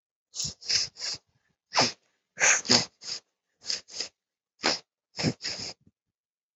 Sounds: Sniff